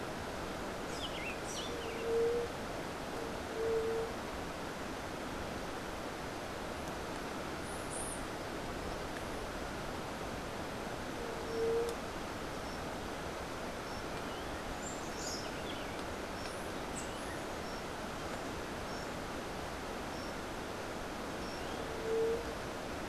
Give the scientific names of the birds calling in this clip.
Leptotila verreauxi, Saltator maximus, Melozone leucotis